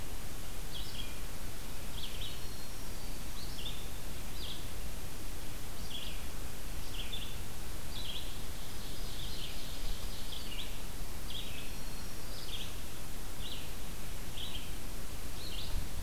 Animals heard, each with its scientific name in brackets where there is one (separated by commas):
Black-throated Green Warbler (Setophaga virens), Ovenbird (Seiurus aurocapilla), Red-eyed Vireo (Vireo olivaceus)